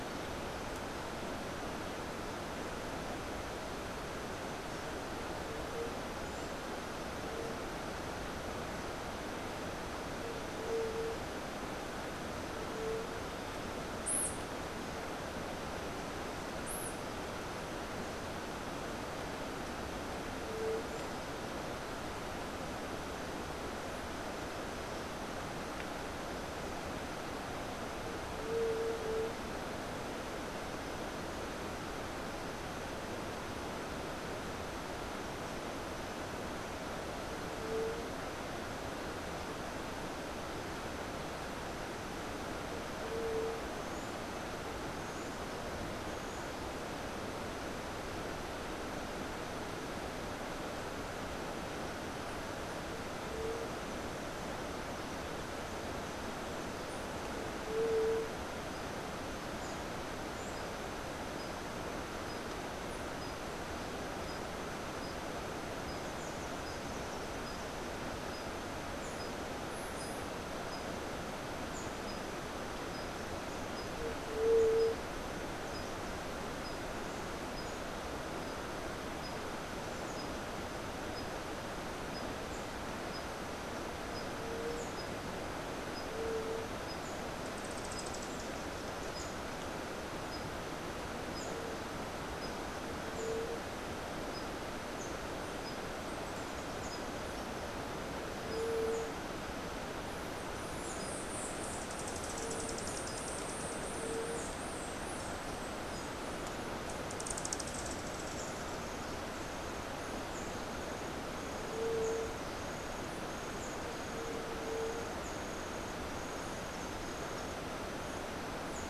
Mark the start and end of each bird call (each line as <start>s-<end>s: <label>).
10.6s-11.2s: White-tipped Dove (Leptotila verreauxi)
13.9s-14.3s: White-eared Ground-Sparrow (Melozone leucotis)
20.3s-20.9s: White-tipped Dove (Leptotila verreauxi)
28.4s-29.1s: White-tipped Dove (Leptotila verreauxi)
37.5s-38.2s: White-tipped Dove (Leptotila verreauxi)
43.0s-43.7s: White-tipped Dove (Leptotila verreauxi)
57.6s-58.3s: White-tipped Dove (Leptotila verreauxi)
74.3s-75.0s: White-tipped Dove (Leptotila verreauxi)
86.1s-86.7s: White-tipped Dove (Leptotila verreauxi)
87.6s-88.9s: Rufous-tailed Hummingbird (Amazilia tzacatl)
93.0s-93.7s: White-tipped Dove (Leptotila verreauxi)
100.6s-106.0s: White-eared Ground-Sparrow (Melozone leucotis)
101.7s-103.6s: Blue-vented Hummingbird (Saucerottia hoffmanni)
106.9s-108.1s: Blue-vented Hummingbird (Saucerottia hoffmanni)